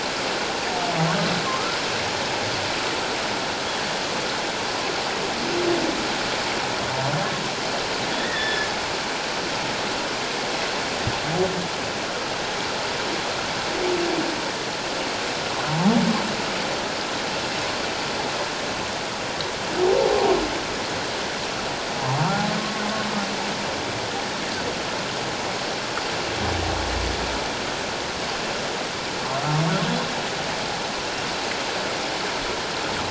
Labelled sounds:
1.5	1.8	humpback whale, 1.0 to 1.4 kHz
8.2	8.7	humpback whale, 1.7 to 3.6 kHz

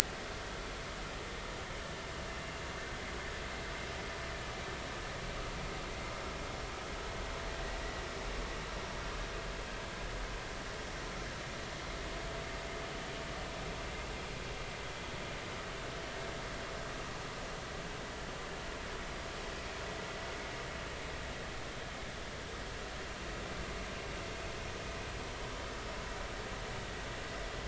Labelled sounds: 0.0	0.3	vessel noise, 1.5 to 1.7 kHz

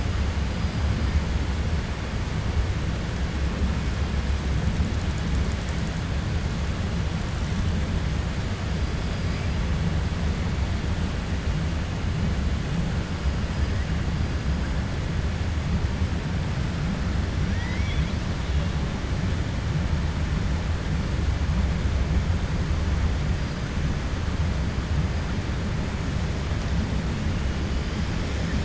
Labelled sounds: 8.8	9.4	killer whale, 4.0 to 5.6 kHz
17.4	18.2	killer whale, 0.99 to 6.5 kHz

